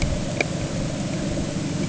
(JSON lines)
{"label": "anthrophony, boat engine", "recorder": "HydroMoth"}